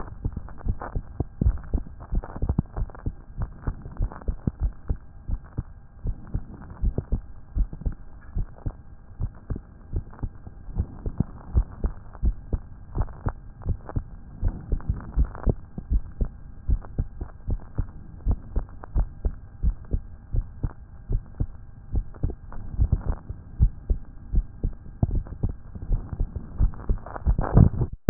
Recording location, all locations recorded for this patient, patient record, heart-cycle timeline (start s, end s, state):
tricuspid valve (TV)
aortic valve (AV)+pulmonary valve (PV)+tricuspid valve (TV)+mitral valve (MV)
#Age: Child
#Sex: Male
#Height: 159.0 cm
#Weight: 38.2 kg
#Pregnancy status: False
#Murmur: Absent
#Murmur locations: nan
#Most audible location: nan
#Systolic murmur timing: nan
#Systolic murmur shape: nan
#Systolic murmur grading: nan
#Systolic murmur pitch: nan
#Systolic murmur quality: nan
#Diastolic murmur timing: nan
#Diastolic murmur shape: nan
#Diastolic murmur grading: nan
#Diastolic murmur pitch: nan
#Diastolic murmur quality: nan
#Outcome: Normal
#Campaign: 2014 screening campaign
0.00	2.68	unannotated
2.68	2.78	diastole
2.78	2.88	S1
2.88	3.04	systole
3.04	3.14	S2
3.14	3.38	diastole
3.38	3.50	S1
3.50	3.66	systole
3.66	3.74	S2
3.74	3.98	diastole
3.98	4.10	S1
4.10	4.26	systole
4.26	4.36	S2
4.36	4.60	diastole
4.60	4.72	S1
4.72	4.88	systole
4.88	4.98	S2
4.98	5.30	diastole
5.30	5.40	S1
5.40	5.56	systole
5.56	5.66	S2
5.66	6.04	diastole
6.04	6.16	S1
6.16	6.34	systole
6.34	6.42	S2
6.42	6.82	diastole
6.82	6.94	S1
6.94	7.12	systole
7.12	7.22	S2
7.22	7.56	diastole
7.56	7.68	S1
7.68	7.84	systole
7.84	7.94	S2
7.94	8.36	diastole
8.36	8.48	S1
8.48	8.66	systole
8.66	8.74	S2
8.74	9.20	diastole
9.20	9.32	S1
9.32	9.50	systole
9.50	9.60	S2
9.60	9.92	diastole
9.92	10.04	S1
10.04	10.22	systole
10.22	10.32	S2
10.32	10.76	diastole
10.76	10.88	S1
10.88	11.06	systole
11.06	11.14	S2
11.14	11.54	diastole
11.54	11.66	S1
11.66	11.82	systole
11.82	11.92	S2
11.92	12.24	diastole
12.24	12.36	S1
12.36	12.52	systole
12.52	12.60	S2
12.60	12.96	diastole
12.96	13.08	S1
13.08	13.24	systole
13.24	13.34	S2
13.34	13.66	diastole
13.66	13.78	S1
13.78	13.94	systole
13.94	14.04	S2
14.04	14.42	diastole
14.42	14.54	S1
14.54	14.70	systole
14.70	14.80	S2
14.80	15.16	diastole
15.16	15.28	S1
15.28	15.46	systole
15.46	15.56	S2
15.56	15.90	diastole
15.90	16.02	S1
16.02	16.20	systole
16.20	16.30	S2
16.30	16.68	diastole
16.68	16.80	S1
16.80	16.98	systole
16.98	17.08	S2
17.08	17.48	diastole
17.48	17.60	S1
17.60	17.78	systole
17.78	17.88	S2
17.88	18.26	diastole
18.26	18.38	S1
18.38	18.54	systole
18.54	18.64	S2
18.64	18.96	diastole
18.96	19.08	S1
19.08	19.24	systole
19.24	19.34	S2
19.34	19.62	diastole
19.62	19.76	S1
19.76	19.92	systole
19.92	20.02	S2
20.02	20.34	diastole
20.34	20.46	S1
20.46	20.62	systole
20.62	20.72	S2
20.72	21.10	diastole
21.10	21.22	S1
21.22	21.40	systole
21.40	21.48	S2
21.48	21.94	diastole
21.94	22.06	S1
22.06	22.24	systole
22.24	22.34	S2
22.34	22.78	diastole
22.78	28.10	unannotated